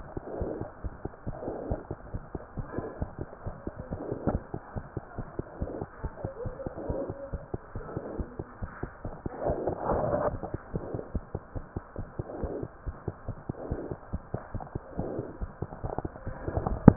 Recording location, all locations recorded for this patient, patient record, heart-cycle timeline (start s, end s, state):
mitral valve (MV)
aortic valve (AV)+mitral valve (MV)
#Age: Infant
#Sex: Male
#Height: 62.0 cm
#Weight: 6.3 kg
#Pregnancy status: False
#Murmur: Absent
#Murmur locations: nan
#Most audible location: nan
#Systolic murmur timing: nan
#Systolic murmur shape: nan
#Systolic murmur grading: nan
#Systolic murmur pitch: nan
#Systolic murmur quality: nan
#Diastolic murmur timing: nan
#Diastolic murmur shape: nan
#Diastolic murmur grading: nan
#Diastolic murmur pitch: nan
#Diastolic murmur quality: nan
#Outcome: Abnormal
#Campaign: 2015 screening campaign
0.00	2.54	unannotated
2.54	2.66	S1
2.66	2.76	systole
2.76	2.86	S2
2.86	2.99	diastole
2.99	3.10	S1
3.10	3.19	systole
3.19	3.25	S2
3.25	3.45	diastole
3.45	3.53	S1
3.53	3.65	systole
3.65	3.72	S2
3.72	3.90	diastole
3.90	3.99	S1
3.99	4.10	systole
4.10	4.18	S2
4.18	4.32	diastole
4.32	4.40	S1
4.40	4.54	systole
4.54	4.60	S2
4.60	4.76	diastole
4.76	4.83	S1
4.83	4.96	systole
4.96	5.02	S2
5.02	5.16	diastole
5.16	5.25	S1
5.25	5.37	systole
5.37	5.44	S2
5.44	5.60	diastole
5.60	5.66	S1
5.66	5.80	systole
5.80	5.87	S2
5.87	6.02	diastole
6.02	6.09	S1
6.09	6.22	systole
6.22	6.28	S2
6.28	6.44	diastole
6.44	6.52	S1
6.52	6.64	systole
6.64	6.70	S2
6.70	6.88	diastole
6.88	6.94	S1
6.94	7.09	systole
7.09	7.14	S2
7.14	7.31	diastole
7.31	7.39	S1
7.39	7.52	systole
7.52	7.58	S2
7.58	7.74	diastole
7.74	7.81	S1
7.81	7.96	systole
7.96	8.02	S2
8.02	8.18	diastole
8.18	8.26	S1
8.26	8.37	systole
8.37	8.46	S2
8.46	8.61	diastole
8.61	8.70	S1
8.70	8.81	systole
8.81	8.90	S2
8.90	9.04	diastole
9.04	9.11	S1
9.11	16.96	unannotated